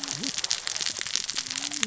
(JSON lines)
{"label": "biophony, cascading saw", "recorder": "SoundTrap 600 or HydroMoth"}